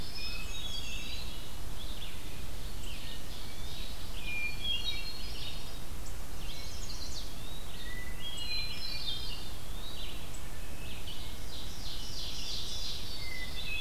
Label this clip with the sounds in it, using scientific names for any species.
Catharus guttatus, Vireo olivaceus, Contopus virens, Setophaga pensylvanica, Seiurus aurocapilla